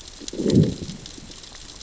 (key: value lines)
label: biophony, growl
recorder: SoundTrap 600 or HydroMoth